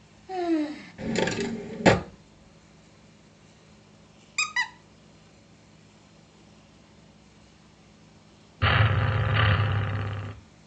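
First someone sighs. Then a wooden drawer opens. After that, squeaking can be heard. Finally, you can hear an engine.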